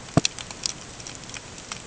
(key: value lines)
label: ambient
recorder: HydroMoth